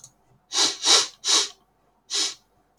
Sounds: Sniff